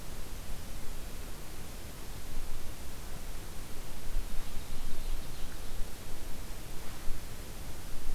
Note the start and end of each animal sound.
4.1s-5.9s: Ovenbird (Seiurus aurocapilla)

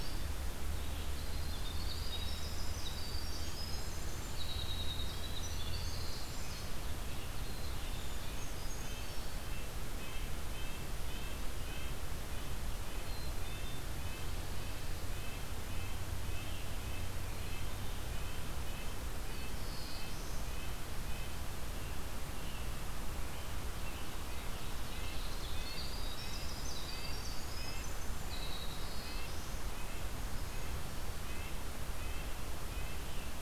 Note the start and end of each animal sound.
0.0s-2.4s: Red-eyed Vireo (Vireo olivaceus)
1.3s-6.8s: Winter Wren (Troglodytes hiemalis)
7.3s-8.0s: Black-capped Chickadee (Poecile atricapillus)
7.5s-9.5s: Brown Creeper (Certhia americana)
8.8s-12.1s: Red-breasted Nuthatch (Sitta canadensis)
12.9s-13.8s: Black-capped Chickadee (Poecile atricapillus)
13.4s-33.4s: Red-breasted Nuthatch (Sitta canadensis)
19.4s-20.5s: Black-throated Blue Warbler (Setophaga caerulescens)
24.2s-26.0s: Ovenbird (Seiurus aurocapilla)
24.4s-29.6s: Winter Wren (Troglodytes hiemalis)
28.3s-29.7s: Black-throated Blue Warbler (Setophaga caerulescens)

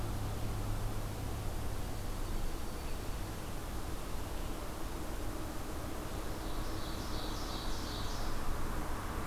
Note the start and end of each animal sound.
1.4s-3.4s: Dark-eyed Junco (Junco hyemalis)
6.0s-8.4s: Ovenbird (Seiurus aurocapilla)

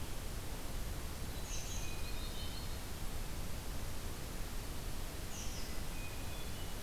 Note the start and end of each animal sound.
1.1s-2.8s: Yellow-rumped Warbler (Setophaga coronata)
1.5s-1.8s: American Robin (Turdus migratorius)
1.6s-2.3s: Hermit Thrush (Catharus guttatus)
5.3s-5.7s: American Robin (Turdus migratorius)
5.5s-6.8s: Hermit Thrush (Catharus guttatus)

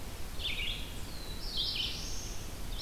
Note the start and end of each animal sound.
0.0s-0.9s: Red-eyed Vireo (Vireo olivaceus)
0.5s-2.6s: Black-throated Blue Warbler (Setophaga caerulescens)
1.3s-2.8s: Red-eyed Vireo (Vireo olivaceus)

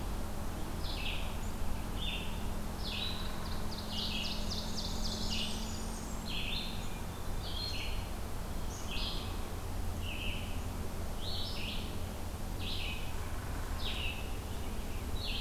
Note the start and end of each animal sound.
0.0s-15.4s: Red-eyed Vireo (Vireo olivaceus)
3.5s-6.1s: Ovenbird (Seiurus aurocapilla)
4.7s-6.4s: Blackburnian Warbler (Setophaga fusca)
8.5s-9.1s: Black-capped Chickadee (Poecile atricapillus)

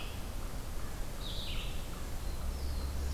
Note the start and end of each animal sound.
0.0s-3.1s: Red-eyed Vireo (Vireo olivaceus)
2.0s-3.1s: Black-throated Blue Warbler (Setophaga caerulescens)

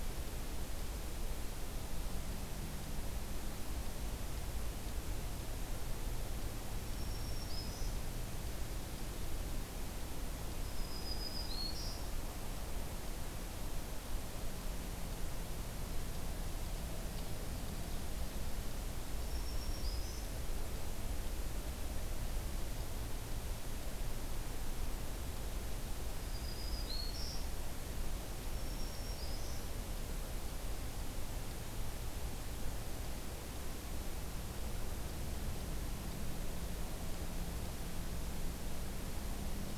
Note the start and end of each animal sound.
6.7s-8.0s: Black-throated Green Warbler (Setophaga virens)
10.6s-12.1s: Black-throated Green Warbler (Setophaga virens)
19.2s-20.3s: Black-throated Green Warbler (Setophaga virens)
26.2s-27.5s: Black-throated Green Warbler (Setophaga virens)
28.5s-29.7s: Black-throated Green Warbler (Setophaga virens)

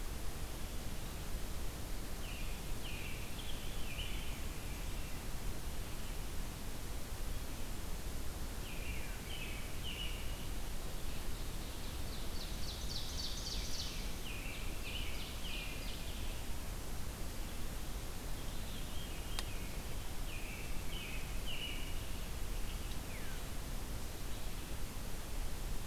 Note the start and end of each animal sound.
1.8s-4.3s: American Robin (Turdus migratorius)
3.2s-5.2s: Veery (Catharus fuscescens)
8.4s-10.5s: American Robin (Turdus migratorius)
10.9s-14.1s: Ovenbird (Seiurus aurocapilla)
13.7s-15.8s: American Robin (Turdus migratorius)
14.3s-16.4s: Ovenbird (Seiurus aurocapilla)
18.2s-19.8s: Veery (Catharus fuscescens)
20.2s-22.5s: American Robin (Turdus migratorius)
22.9s-23.5s: Veery (Catharus fuscescens)

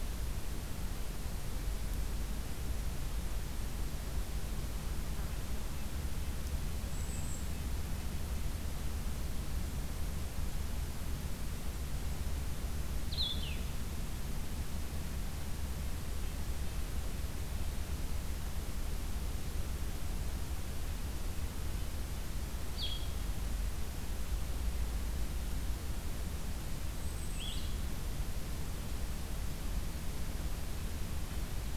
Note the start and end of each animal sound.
5.6s-8.2s: Red-breasted Nuthatch (Sitta canadensis)
6.7s-7.6s: Golden-crowned Kinglet (Regulus satrapa)
12.9s-13.8s: Blue-headed Vireo (Vireo solitarius)
15.4s-17.8s: Red-breasted Nuthatch (Sitta canadensis)
22.6s-23.3s: Blue-headed Vireo (Vireo solitarius)
26.8s-27.7s: Golden-crowned Kinglet (Regulus satrapa)
27.2s-27.8s: Blue-headed Vireo (Vireo solitarius)

